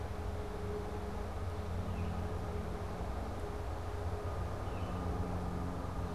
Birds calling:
Baltimore Oriole (Icterus galbula)

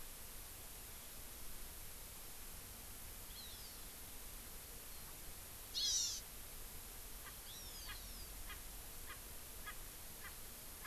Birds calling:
Hawaii Amakihi (Chlorodrepanis virens), Erckel's Francolin (Pternistis erckelii)

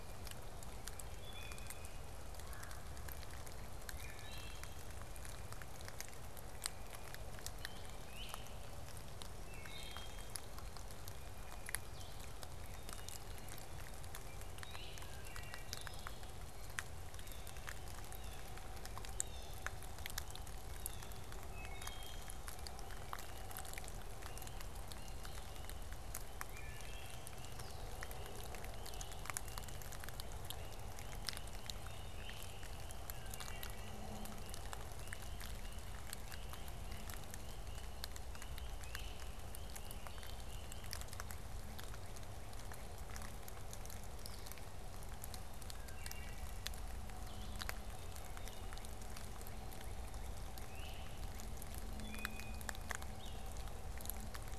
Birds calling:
Wood Thrush (Hylocichla mustelina), Blue-headed Vireo (Vireo solitarius), Great Crested Flycatcher (Myiarchus crinitus), Northern Cardinal (Cardinalis cardinalis), Red-bellied Woodpecker (Melanerpes carolinus), Blue Jay (Cyanocitta cristata)

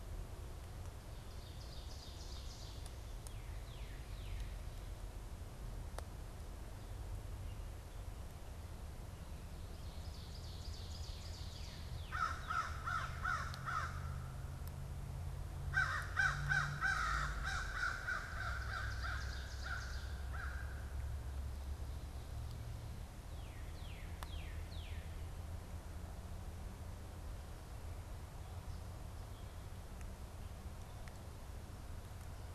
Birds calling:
American Crow (Corvus brachyrhynchos), Northern Cardinal (Cardinalis cardinalis), Ovenbird (Seiurus aurocapilla)

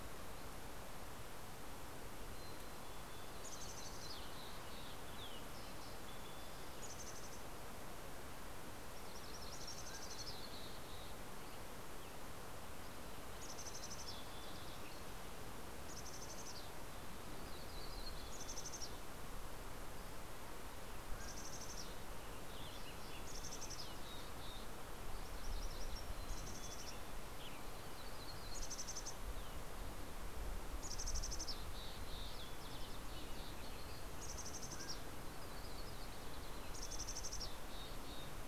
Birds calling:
Western Tanager (Piranga ludoviciana), MacGillivray's Warbler (Geothlypis tolmiei), Mountain Quail (Oreortyx pictus), Yellow-rumped Warbler (Setophaga coronata), Green-tailed Towhee (Pipilo chlorurus), Mountain Chickadee (Poecile gambeli)

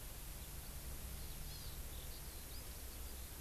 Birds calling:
Eurasian Skylark (Alauda arvensis), Hawaii Amakihi (Chlorodrepanis virens)

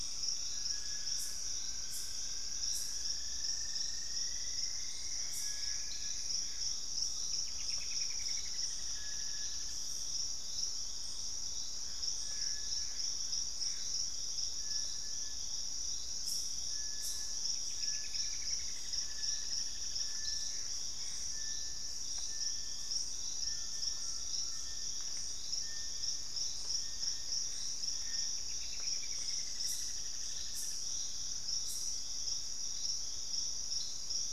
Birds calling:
Purple-throated Fruitcrow (Querula purpurata), Gray Antbird (Cercomacra cinerascens), Cinnamon-rumped Foliage-gleaner (Philydor pyrrhodes), Collared Trogon (Trogon collaris), Little Tinamou (Crypturellus soui), Straight-billed Woodcreeper (Dendroplex picus)

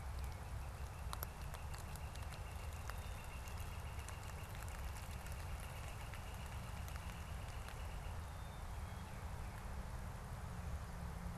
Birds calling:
Northern Flicker (Colaptes auratus), Tufted Titmouse (Baeolophus bicolor), Black-capped Chickadee (Poecile atricapillus)

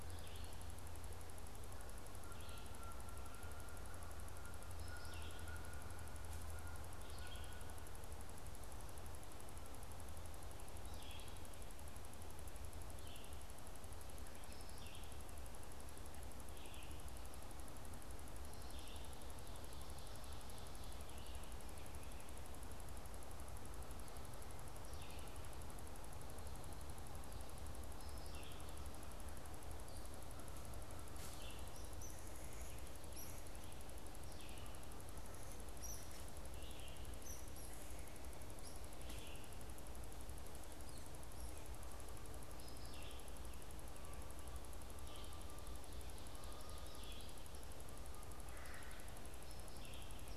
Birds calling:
Red-eyed Vireo (Vireo olivaceus), Canada Goose (Branta canadensis), Red-bellied Woodpecker (Melanerpes carolinus)

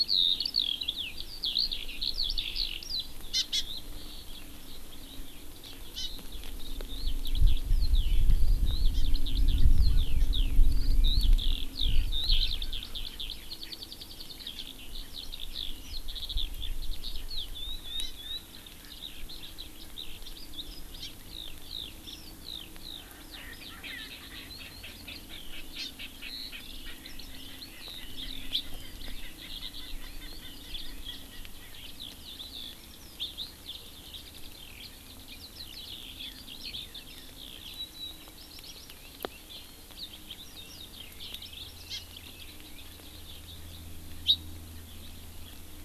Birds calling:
Hawaii Amakihi (Chlorodrepanis virens), Eurasian Skylark (Alauda arvensis), Erckel's Francolin (Pternistis erckelii)

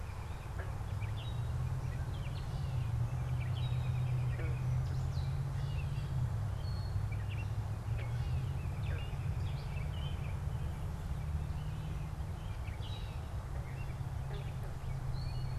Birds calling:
American Robin (Turdus migratorius), Gray Catbird (Dumetella carolinensis)

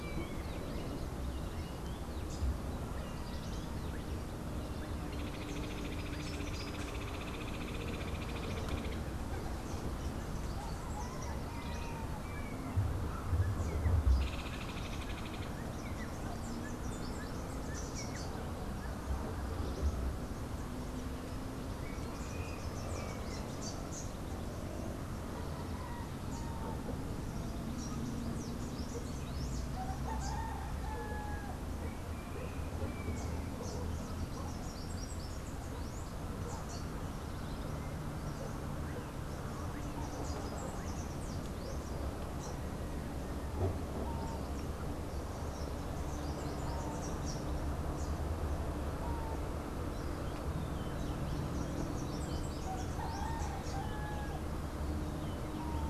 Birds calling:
Hoffmann's Woodpecker (Melanerpes hoffmannii), Rufous-naped Wren (Campylorhynchus rufinucha), Rufous-capped Warbler (Basileuterus rufifrons)

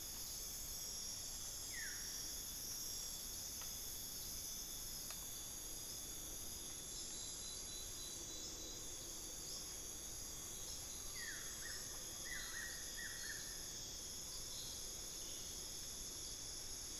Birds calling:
Collared Forest-Falcon (Micrastur semitorquatus), Buff-throated Woodcreeper (Xiphorhynchus guttatus)

